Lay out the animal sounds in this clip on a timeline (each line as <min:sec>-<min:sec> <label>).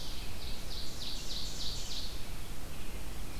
0:00.0-0:02.1 Ovenbird (Seiurus aurocapilla)
0:00.0-0:03.4 Red-eyed Vireo (Vireo olivaceus)